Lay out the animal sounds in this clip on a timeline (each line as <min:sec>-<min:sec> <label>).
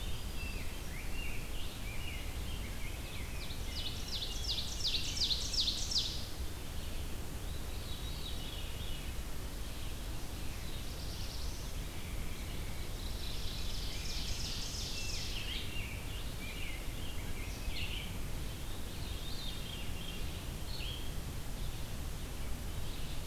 0:00.0-0:01.9 Winter Wren (Troglodytes hiemalis)
0:00.0-0:05.2 Rose-breasted Grosbeak (Pheucticus ludovicianus)
0:00.0-0:23.3 Red-eyed Vireo (Vireo olivaceus)
0:03.3-0:06.1 Ovenbird (Seiurus aurocapilla)
0:07.6-0:09.3 Veery (Catharus fuscescens)
0:10.1-0:11.9 Black-throated Blue Warbler (Setophaga caerulescens)
0:12.7-0:15.4 Ovenbird (Seiurus aurocapilla)
0:14.7-0:18.1 Rose-breasted Grosbeak (Pheucticus ludovicianus)
0:18.5-0:20.4 Veery (Catharus fuscescens)
0:22.7-0:23.3 Ovenbird (Seiurus aurocapilla)